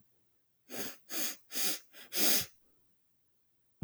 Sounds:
Sniff